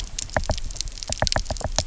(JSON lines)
{"label": "biophony, knock", "recorder": "SoundTrap 300"}